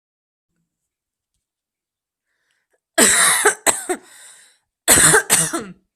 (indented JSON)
{
  "expert_labels": [
    {
      "quality": "good",
      "cough_type": "dry",
      "dyspnea": false,
      "wheezing": false,
      "stridor": false,
      "choking": false,
      "congestion": false,
      "nothing": true,
      "diagnosis": "upper respiratory tract infection",
      "severity": "mild"
    }
  ],
  "age": 22,
  "gender": "female",
  "respiratory_condition": false,
  "fever_muscle_pain": false,
  "status": "COVID-19"
}